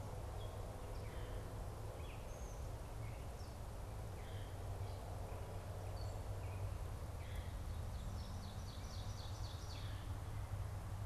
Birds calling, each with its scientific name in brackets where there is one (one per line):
Veery (Catharus fuscescens)
Ovenbird (Seiurus aurocapilla)
Gray Catbird (Dumetella carolinensis)